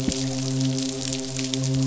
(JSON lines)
{"label": "biophony, midshipman", "recorder": "SoundTrap 500"}